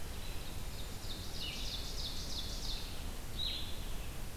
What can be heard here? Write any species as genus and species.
Vireo solitarius, Seiurus aurocapilla